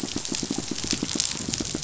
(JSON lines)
{"label": "biophony, pulse", "recorder": "SoundTrap 500"}